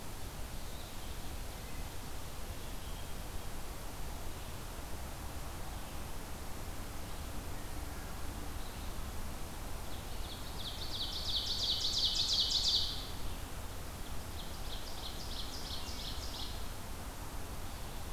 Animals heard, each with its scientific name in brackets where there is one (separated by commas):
Red-eyed Vireo (Vireo olivaceus), Ovenbird (Seiurus aurocapilla)